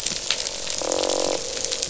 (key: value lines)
label: biophony, croak
recorder: SoundTrap 500